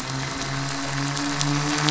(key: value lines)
label: anthrophony, boat engine
recorder: SoundTrap 500